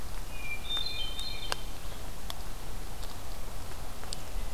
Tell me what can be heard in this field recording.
Hermit Thrush